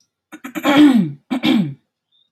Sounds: Throat clearing